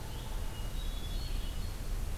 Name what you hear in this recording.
Red-eyed Vireo, Hermit Thrush